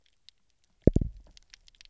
{"label": "biophony, double pulse", "recorder": "SoundTrap 300"}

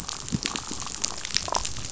{"label": "biophony, damselfish", "recorder": "SoundTrap 500"}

